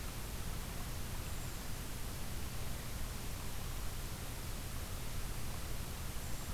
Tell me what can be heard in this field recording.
Brown Creeper